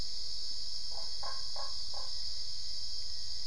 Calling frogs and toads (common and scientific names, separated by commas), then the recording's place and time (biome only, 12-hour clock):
Usina tree frog (Boana lundii)
Cerrado, 3:45am